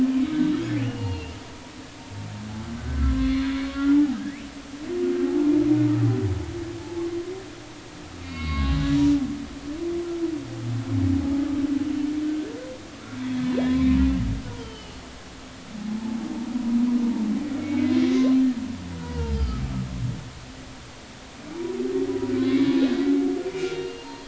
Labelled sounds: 0.8	1.4	humpback whale, 2.6 to 4.4 kHz
2.8	3.5	humpback whale, 0.99 to 4.4 kHz
4.2	4.4	humpback whale, 1.5 to 2.6 kHz
6.8	7.1	humpback whale, 0.83 to 0.90 kHz
8.2	8.8	humpback whale, 1.0 to 4.7 kHz
13.5	14.0	humpback whale, 3.2 to 4.0 kHz
14.5	15.0	humpback whale, 0.86 to 3.3 kHz
15.8	16.2	humpback whale, 0.80 to 1.0 kHz
17.6	19.7	humpback whale, 0.86 to 5.1 kHz
22.4	24.2	humpback whale, 0.86 to 4.3 kHz

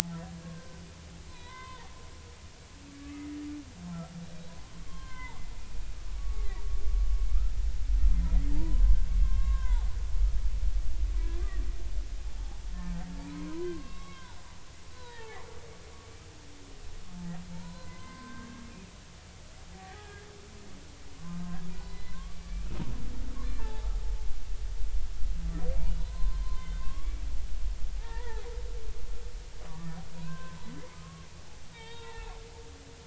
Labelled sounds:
0.4	0.8	humpback whale, 0.99 to 1.6 kHz
1.3	1.9	humpback whale, 0.80 to 4.1 kHz
2.9	3.3	humpback whale, 1.1 to 1.3 kHz
4.8	6.5	humpback whale, 0.80 to 4.4 kHz
8.5	9.8	humpback whale, 0.80 to 1.7 kHz
11.4	11.6	humpback whale, 1.1 to 1.3 kHz
13.2	14.4	humpback whale, 0.83 to 3.9 kHz
14.9	15.4	humpback whale, 0.80 to 4.1 kHz
17.5	18.7	humpback whale, 0.86 to 4.2 kHz
19.7	20.3	humpback whale, 0.80 to 2.0 kHz
21.7	22.7	humpback whale, 0.93 to 4.1 kHz
23.3	23.9	humpback whale, 0.80 to 1.2 kHz
26.0	27.2	humpback whale, 0.93 to 4.2 kHz
28.0	28.5	humpback whale, 0.80 to 2.0 kHz
29.6	30.6	humpback whale, 0.90 to 1.6 kHz
31.7	32.4	humpback whale, 0.80 to 3.9 kHz

